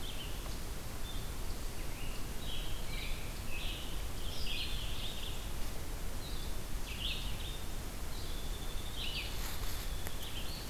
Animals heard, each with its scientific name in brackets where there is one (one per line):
Scarlet Tanager (Piranga olivacea)
Winter Wren (Troglodytes hiemalis)
Red-eyed Vireo (Vireo olivaceus)